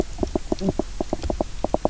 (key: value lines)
label: biophony, knock croak
recorder: SoundTrap 300